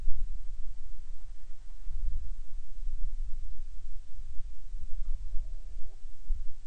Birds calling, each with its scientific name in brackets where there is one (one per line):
Hawaiian Petrel (Pterodroma sandwichensis)